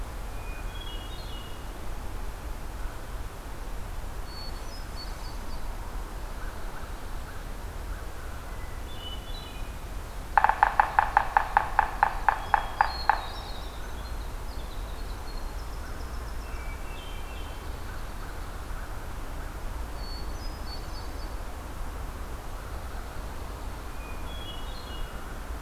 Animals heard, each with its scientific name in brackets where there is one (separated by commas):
Yellow-bellied Sapsucker (Sphyrapicus varius), Hermit Thrush (Catharus guttatus), Pine Warbler (Setophaga pinus), American Crow (Corvus brachyrhynchos), Winter Wren (Troglodytes hiemalis)